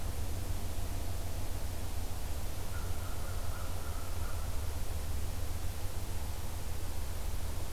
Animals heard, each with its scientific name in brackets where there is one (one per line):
American Crow (Corvus brachyrhynchos)